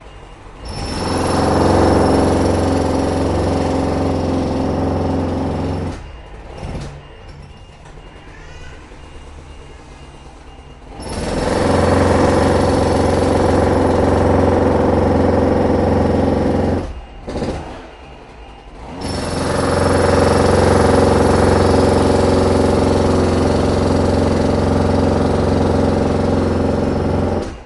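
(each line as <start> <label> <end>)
0.0 Ambient noise of an apartment with renovation work being done upstairs. 27.7
0.5 An impact drill is being used to remove tile. 7.3
10.8 An impact drill is being used to remove tile. 17.9
18.5 An impact drill is being used to remove tile. 27.7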